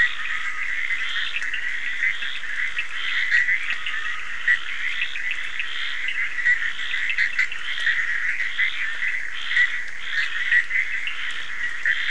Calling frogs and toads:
Dendropsophus nahdereri, Cochran's lime tree frog, Bischoff's tree frog, Scinax perereca

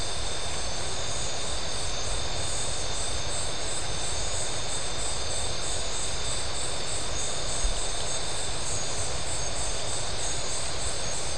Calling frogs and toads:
none

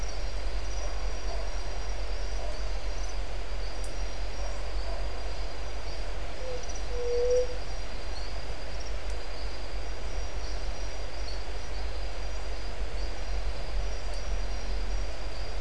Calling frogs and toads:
marbled tropical bullfrog

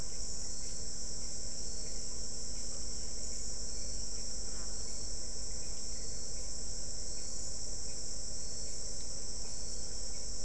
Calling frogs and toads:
none

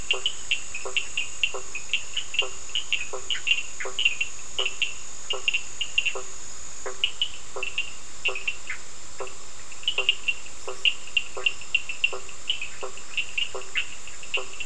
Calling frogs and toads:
blacksmith tree frog, Cochran's lime tree frog

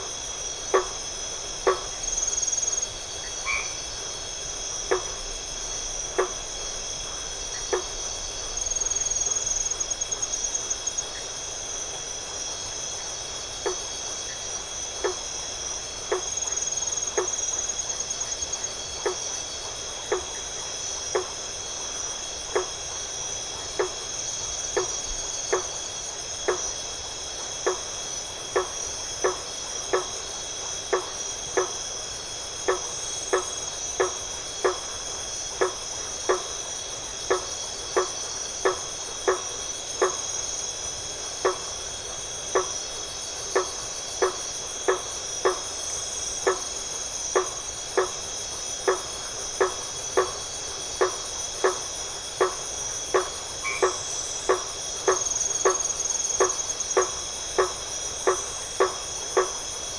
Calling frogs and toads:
blacksmith tree frog, white-edged tree frog, Iporanga white-lipped frog

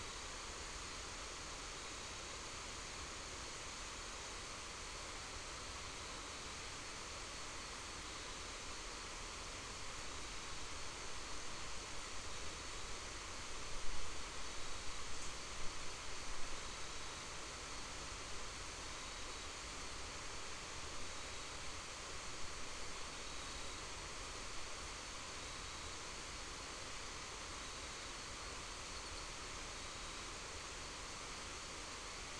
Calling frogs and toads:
none

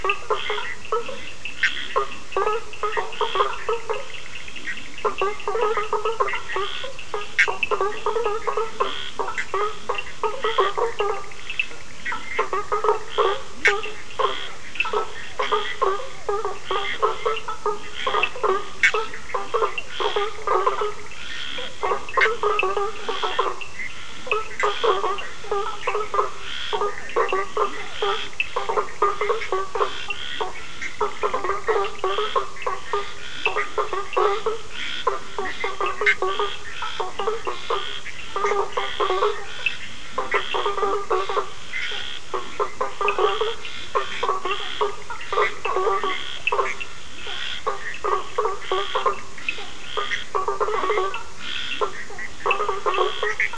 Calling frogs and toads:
Cochran's lime tree frog, blacksmith tree frog, Bischoff's tree frog, Scinax perereca, Leptodactylus latrans, Physalaemus cuvieri

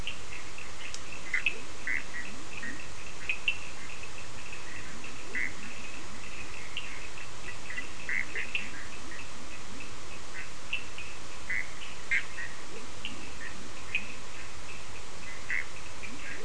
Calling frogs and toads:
Bischoff's tree frog, Cochran's lime tree frog, Leptodactylus latrans

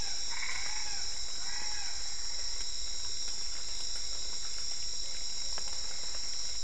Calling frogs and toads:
Boana albopunctata

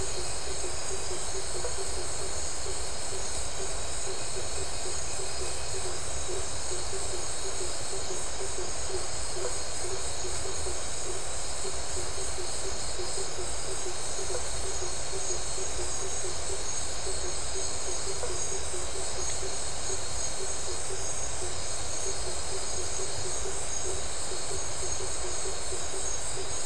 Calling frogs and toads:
blacksmith tree frog

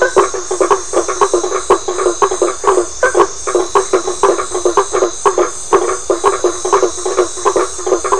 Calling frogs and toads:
blacksmith tree frog

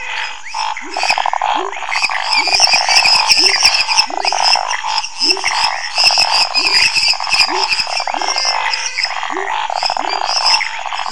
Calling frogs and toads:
menwig frog, lesser tree frog, pepper frog, Scinax fuscovarius

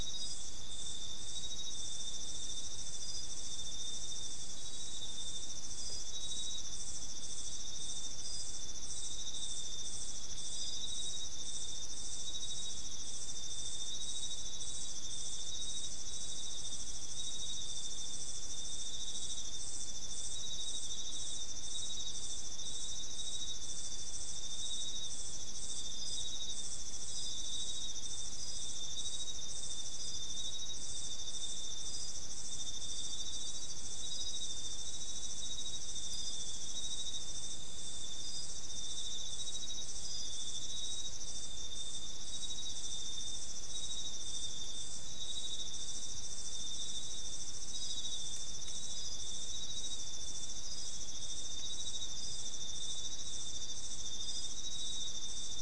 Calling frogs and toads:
none

